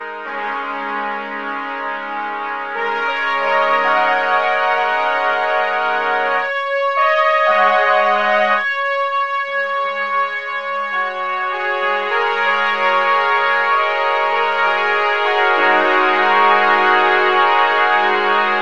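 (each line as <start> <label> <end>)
0.0 A trumpet holds a single note. 8.7
3.0 A French horn plays a higher-pitched melody. 18.5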